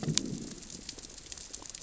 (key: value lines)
label: biophony, growl
recorder: SoundTrap 600 or HydroMoth